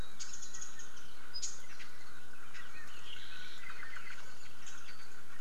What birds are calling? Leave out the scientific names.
Red-billed Leiothrix, Warbling White-eye